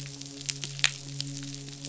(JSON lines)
{"label": "biophony, midshipman", "recorder": "SoundTrap 500"}